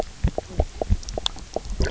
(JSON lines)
{"label": "biophony, knock croak", "recorder": "SoundTrap 300"}